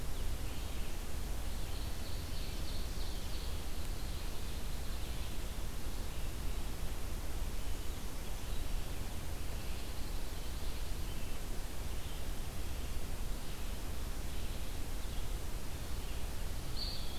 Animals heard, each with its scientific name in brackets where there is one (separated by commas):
Pine Warbler (Setophaga pinus), Red-eyed Vireo (Vireo olivaceus), Ovenbird (Seiurus aurocapilla), Eastern Wood-Pewee (Contopus virens), Blue-headed Vireo (Vireo solitarius)